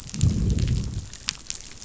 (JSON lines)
{"label": "biophony, growl", "recorder": "SoundTrap 500"}